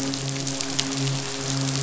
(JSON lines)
{"label": "biophony, midshipman", "recorder": "SoundTrap 500"}